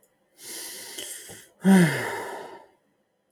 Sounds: Sigh